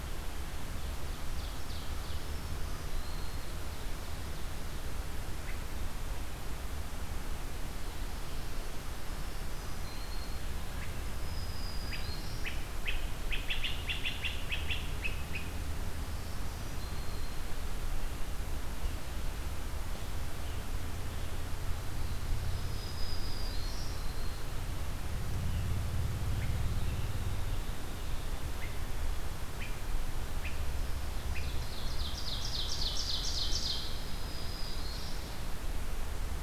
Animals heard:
Scarlet Tanager (Piranga olivacea)
Black-throated Green Warbler (Setophaga virens)
Ovenbird (Seiurus aurocapilla)

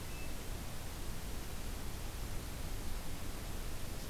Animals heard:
Hermit Thrush (Catharus guttatus)

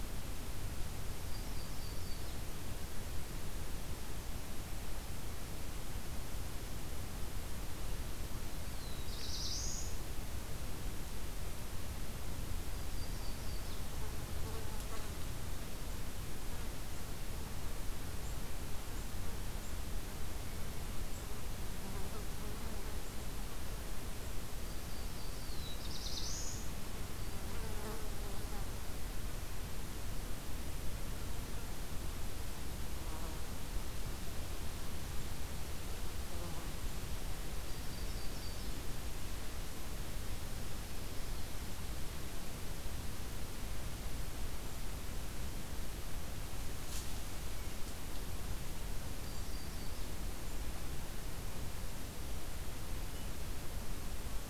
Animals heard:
Black-throated Blue Warbler (Setophaga caerulescens)
Yellow-rumped Warbler (Setophaga coronata)
Black-capped Chickadee (Poecile atricapillus)

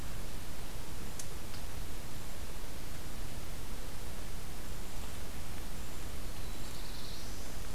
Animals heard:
Black-throated Blue Warbler (Setophaga caerulescens)

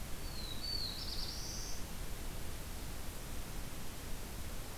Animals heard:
Black-throated Blue Warbler (Setophaga caerulescens)

